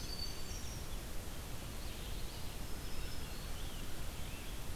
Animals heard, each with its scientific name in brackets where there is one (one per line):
Red-eyed Vireo (Vireo olivaceus)
Black-throated Green Warbler (Setophaga virens)
Winter Wren (Troglodytes hiemalis)